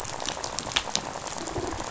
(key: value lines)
label: biophony, rattle
recorder: SoundTrap 500